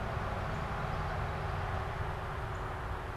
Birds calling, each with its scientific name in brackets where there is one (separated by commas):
Northern Cardinal (Cardinalis cardinalis), Common Yellowthroat (Geothlypis trichas)